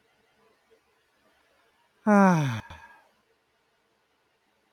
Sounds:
Sigh